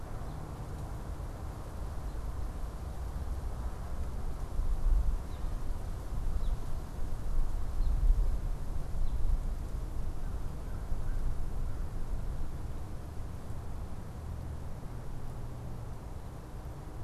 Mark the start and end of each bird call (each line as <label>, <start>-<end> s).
American Robin (Turdus migratorius), 0.0-9.7 s
American Crow (Corvus brachyrhynchos), 10.0-11.4 s